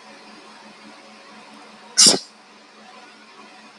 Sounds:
Sneeze